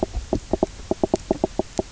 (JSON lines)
{"label": "biophony, knock croak", "recorder": "SoundTrap 300"}